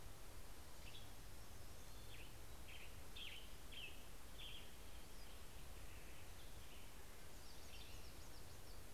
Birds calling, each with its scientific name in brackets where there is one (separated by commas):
Hermit Warbler (Setophaga occidentalis), Western Tanager (Piranga ludoviciana)